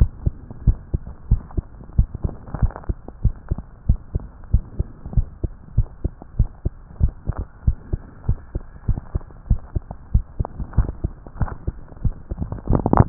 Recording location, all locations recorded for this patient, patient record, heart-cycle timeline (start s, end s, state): tricuspid valve (TV)
aortic valve (AV)+pulmonary valve (PV)+tricuspid valve (TV)+mitral valve (MV)
#Age: Child
#Sex: Male
#Height: 136.0 cm
#Weight: 26.1 kg
#Pregnancy status: False
#Murmur: Absent
#Murmur locations: nan
#Most audible location: nan
#Systolic murmur timing: nan
#Systolic murmur shape: nan
#Systolic murmur grading: nan
#Systolic murmur pitch: nan
#Systolic murmur quality: nan
#Diastolic murmur timing: nan
#Diastolic murmur shape: nan
#Diastolic murmur grading: nan
#Diastolic murmur pitch: nan
#Diastolic murmur quality: nan
#Outcome: Abnormal
#Campaign: 2015 screening campaign
0.00	0.12	S1
0.12	0.22	systole
0.22	0.36	S2
0.36	0.62	diastole
0.62	0.78	S1
0.78	0.90	systole
0.90	1.02	S2
1.02	1.28	diastole
1.28	1.44	S1
1.44	1.54	systole
1.54	1.66	S2
1.66	1.94	diastole
1.94	2.08	S1
2.08	2.20	systole
2.20	2.32	S2
2.32	2.57	diastole
2.57	2.74	S1
2.74	2.85	systole
2.85	2.98	S2
2.98	3.20	diastole
3.20	3.36	S1
3.36	3.47	systole
3.47	3.60	S2
3.60	3.86	diastole
3.86	4.00	S1
4.00	4.10	systole
4.10	4.26	S2
4.26	4.50	diastole
4.50	4.64	S1
4.64	4.74	systole
4.74	4.88	S2
4.88	5.12	diastole
5.12	5.28	S1
5.28	5.39	systole
5.39	5.52	S2
5.52	5.73	diastole
5.73	5.88	S1
5.88	5.99	systole
5.99	6.12	S2
6.12	6.36	diastole
6.36	6.50	S1
6.50	6.61	systole
6.61	6.72	S2
6.72	7.00	diastole
7.00	7.14	S1
7.14	7.25	systole
7.25	7.36	S2
7.36	7.62	diastole
7.62	7.78	S1
7.78	7.88	systole
7.88	8.00	S2
8.00	8.26	diastole
8.26	8.38	S1
8.38	8.51	systole
8.51	8.64	S2
8.64	8.86	diastole
8.86	9.00	S1
9.00	9.11	systole
9.11	9.22	S2
9.22	9.46	diastole
9.46	9.62	S1
9.62	9.73	systole
9.73	9.86	S2
9.86	10.10	diastole
10.10	10.26	S1
10.26	10.35	systole
10.35	10.50	S2
10.50	10.73	diastole
10.73	10.92	S1
10.92	11.01	systole
11.01	11.12	S2
11.12	11.36	diastole
11.36	11.51	S1
11.51	11.63	systole
11.63	11.76	S2
11.76	12.00	diastole
12.00	12.16	S1